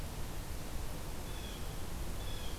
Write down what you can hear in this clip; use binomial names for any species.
Sitta canadensis